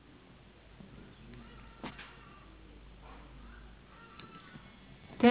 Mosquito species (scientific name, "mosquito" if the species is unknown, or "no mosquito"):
no mosquito